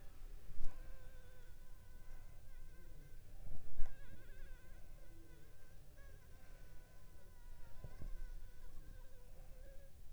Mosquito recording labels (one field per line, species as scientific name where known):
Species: Anopheles funestus s.l.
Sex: female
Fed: unfed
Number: one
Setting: cup